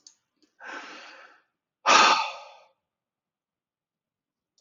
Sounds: Sigh